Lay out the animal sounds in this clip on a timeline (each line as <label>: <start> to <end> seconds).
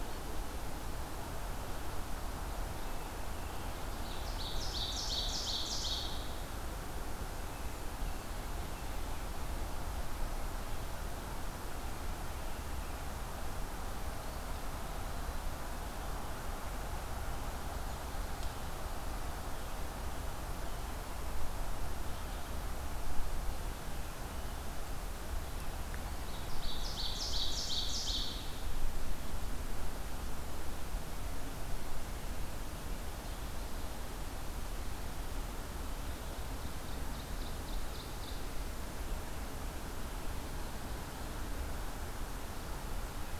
Ovenbird (Seiurus aurocapilla): 4.0 to 6.4 seconds
Eastern Wood-Pewee (Contopus virens): 14.1 to 15.6 seconds
Ovenbird (Seiurus aurocapilla): 26.0 to 28.6 seconds
Ovenbird (Seiurus aurocapilla): 36.3 to 38.6 seconds